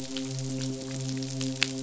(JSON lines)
{"label": "biophony, midshipman", "recorder": "SoundTrap 500"}